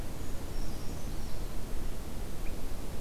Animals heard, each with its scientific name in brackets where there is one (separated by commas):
Brown Creeper (Certhia americana)